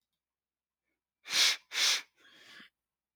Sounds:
Sniff